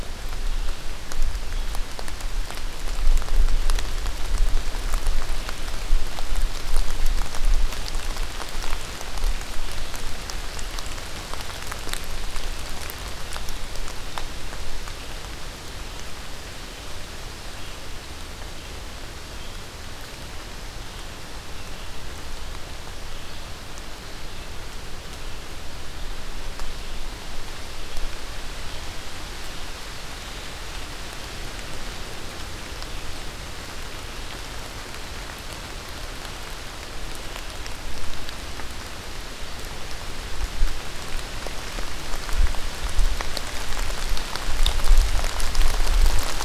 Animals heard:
forest ambience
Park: Acadia National Park